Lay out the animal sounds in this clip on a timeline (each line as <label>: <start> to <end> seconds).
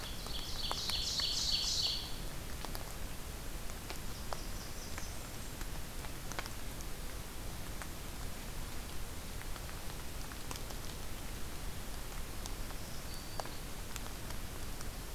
Ovenbird (Seiurus aurocapilla): 0.0 to 2.1 seconds
Blackburnian Warbler (Setophaga fusca): 3.7 to 5.6 seconds
Black-throated Green Warbler (Setophaga virens): 12.3 to 13.6 seconds